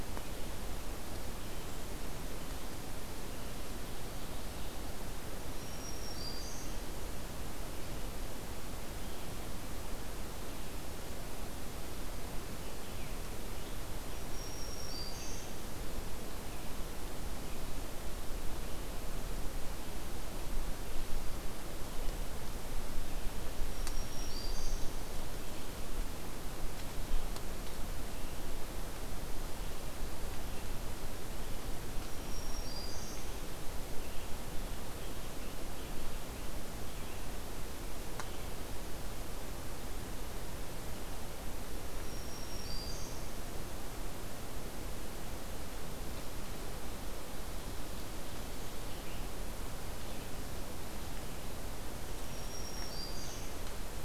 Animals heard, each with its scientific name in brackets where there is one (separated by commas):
Scarlet Tanager (Piranga olivacea), Black-throated Green Warbler (Setophaga virens)